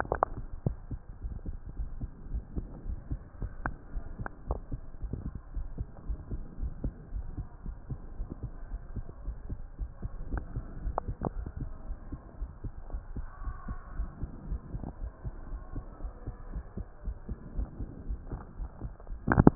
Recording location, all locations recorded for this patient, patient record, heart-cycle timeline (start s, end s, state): pulmonary valve (PV)
aortic valve (AV)+pulmonary valve (PV)+tricuspid valve (TV)+mitral valve (MV)
#Age: nan
#Sex: Female
#Height: nan
#Weight: nan
#Pregnancy status: True
#Murmur: Absent
#Murmur locations: nan
#Most audible location: nan
#Systolic murmur timing: nan
#Systolic murmur shape: nan
#Systolic murmur grading: nan
#Systolic murmur pitch: nan
#Systolic murmur quality: nan
#Diastolic murmur timing: nan
#Diastolic murmur shape: nan
#Diastolic murmur grading: nan
#Diastolic murmur pitch: nan
#Diastolic murmur quality: nan
#Outcome: Normal
#Campaign: 2015 screening campaign
0.00	1.00	unannotated
1.00	1.22	diastole
1.22	1.36	S1
1.36	1.44	systole
1.44	1.56	S2
1.56	1.76	diastole
1.76	1.90	S1
1.90	2.00	systole
2.00	2.10	S2
2.10	2.30	diastole
2.30	2.44	S1
2.44	2.54	systole
2.54	2.68	S2
2.68	2.86	diastole
2.86	3.00	S1
3.00	3.10	systole
3.10	3.22	S2
3.22	3.40	diastole
3.40	3.52	S1
3.52	3.64	systole
3.64	3.74	S2
3.74	3.94	diastole
3.94	4.04	S1
4.04	4.18	systole
4.18	4.32	S2
4.32	4.50	diastole
4.50	4.62	S1
4.62	4.70	systole
4.70	4.80	S2
4.80	5.00	diastole
5.00	5.12	S1
5.12	5.24	systole
5.24	5.34	S2
5.34	5.54	diastole
5.54	5.72	S1
5.72	5.78	systole
5.78	5.88	S2
5.88	6.08	diastole
6.08	6.20	S1
6.20	6.30	systole
6.30	6.42	S2
6.42	6.60	diastole
6.60	6.74	S1
6.74	6.82	systole
6.82	6.94	S2
6.94	7.11	diastole
7.11	7.26	S1
7.26	7.36	systole
7.36	7.48	S2
7.48	7.66	diastole
7.66	7.76	S1
7.76	7.90	systole
7.90	8.00	S2
8.00	8.18	diastole
8.18	8.28	S1
8.28	8.42	systole
8.42	8.52	S2
8.52	8.72	diastole
8.72	8.82	S1
8.82	8.94	systole
8.94	9.06	S2
9.06	9.26	diastole
9.26	9.38	S1
9.38	9.50	systole
9.50	9.60	S2
9.60	9.78	diastole
9.78	9.90	S1
9.90	10.02	systole
10.02	10.12	S2
10.12	10.30	diastole
10.30	10.44	S1
10.44	10.54	systole
10.54	10.64	S2
10.64	10.84	diastole
10.84	10.98	S1
10.98	11.06	systole
11.06	11.18	S2
11.18	11.38	diastole
11.38	11.52	S1
11.52	11.58	systole
11.58	11.70	S2
11.70	11.88	diastole
11.88	11.98	S1
11.98	12.10	systole
12.10	12.18	S2
12.18	12.40	diastole
12.40	12.50	S1
12.50	12.64	systole
12.64	12.74	S2
12.74	12.92	diastole
12.92	13.02	S1
13.02	13.14	systole
13.14	13.28	S2
13.28	13.42	diastole
13.42	13.56	S1
13.56	13.68	systole
13.68	13.78	S2
13.78	13.96	diastole
13.96	14.12	S1
14.12	14.22	systole
14.22	14.32	S2
14.32	14.46	diastole
14.46	14.60	S1
14.60	14.72	systole
14.72	14.84	S2
14.84	15.02	diastole
15.02	15.12	S1
15.12	15.26	systole
15.26	15.36	S2
15.36	15.52	diastole
15.52	15.66	S1
15.66	15.76	systole
15.76	15.86	S2
15.86	16.02	diastole
16.02	16.12	S1
16.12	16.26	systole
16.26	16.34	S2
16.34	16.50	diastole
16.50	16.64	S1
16.64	16.78	systole
16.78	16.88	S2
16.88	17.06	diastole
17.06	17.20	S1
17.20	17.30	systole
17.30	17.40	S2
17.40	17.56	diastole
17.56	17.70	S1
17.70	17.80	systole
17.80	17.90	S2
17.90	18.08	diastole
18.08	18.22	S1
18.22	18.30	systole
18.30	18.42	S2
18.42	18.60	diastole
18.60	18.70	S1
18.70	18.82	systole
18.82	18.92	S2
18.92	19.10	diastole
19.10	19.20	S1
19.20	19.28	systole
19.28	19.42	S2
19.42	19.55	diastole